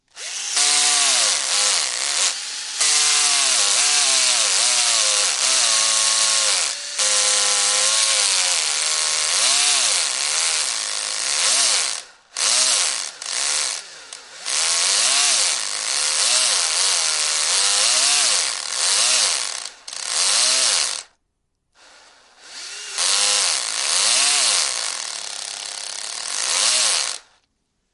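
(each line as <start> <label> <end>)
0.1 A high-pitched whirring from an electric drill. 21.1
22.4 A high-pitched whirring from an electric drill. 27.3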